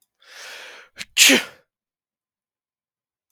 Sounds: Sneeze